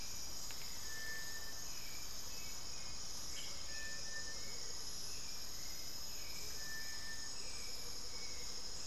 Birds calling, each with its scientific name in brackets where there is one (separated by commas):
Amazonian Motmot (Momotus momota), Hauxwell's Thrush (Turdus hauxwelli)